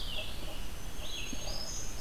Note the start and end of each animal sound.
0.0s-2.0s: Red-eyed Vireo (Vireo olivaceus)
0.4s-2.0s: Black-throated Green Warbler (Setophaga virens)

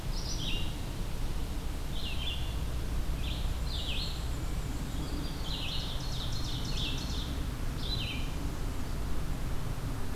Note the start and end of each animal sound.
0.0s-8.7s: Red-eyed Vireo (Vireo olivaceus)
3.2s-5.4s: Black-and-white Warbler (Mniotilta varia)
5.1s-7.5s: Ovenbird (Seiurus aurocapilla)

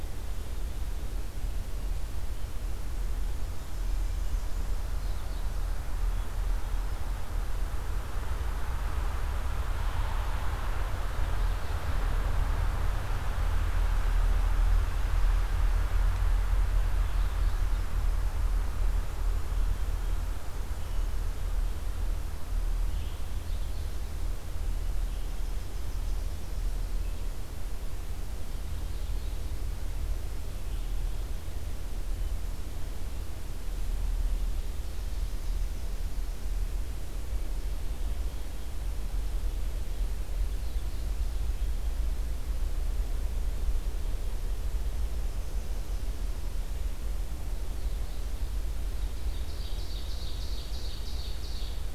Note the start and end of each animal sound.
3.6s-4.5s: Hermit Thrush (Catharus guttatus)
25.1s-26.9s: Yellow-rumped Warbler (Setophaga coronata)
47.5s-51.9s: Ovenbird (Seiurus aurocapilla)

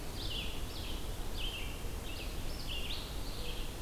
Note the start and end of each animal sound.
0.0s-3.8s: Red-eyed Vireo (Vireo olivaceus)

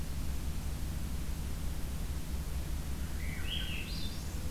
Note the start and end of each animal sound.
3.1s-4.4s: Swainson's Thrush (Catharus ustulatus)

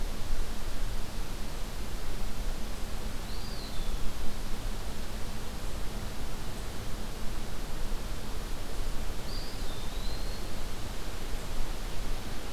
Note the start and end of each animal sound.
3.2s-4.3s: Eastern Wood-Pewee (Contopus virens)
9.2s-10.7s: Eastern Wood-Pewee (Contopus virens)

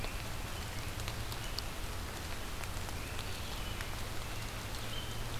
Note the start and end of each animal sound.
0.0s-1.5s: Red-eyed Vireo (Vireo olivaceus)
0.0s-1.8s: American Robin (Turdus migratorius)
2.9s-5.4s: American Robin (Turdus migratorius)

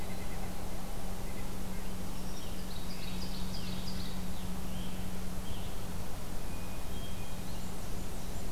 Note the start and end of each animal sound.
0.0s-1.6s: Red-breasted Nuthatch (Sitta canadensis)
2.6s-4.2s: Ovenbird (Seiurus aurocapilla)
2.7s-5.9s: Scarlet Tanager (Piranga olivacea)
6.3s-7.6s: Hermit Thrush (Catharus guttatus)
7.3s-8.5s: Blackburnian Warbler (Setophaga fusca)

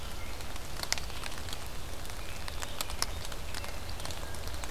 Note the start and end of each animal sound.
2.2s-4.0s: American Robin (Turdus migratorius)

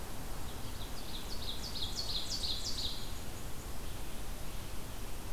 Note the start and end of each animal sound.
0.4s-3.1s: Ovenbird (Seiurus aurocapilla)

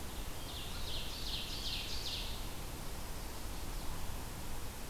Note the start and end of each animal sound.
0.1s-2.4s: Ovenbird (Seiurus aurocapilla)

